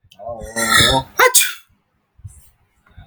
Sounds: Sneeze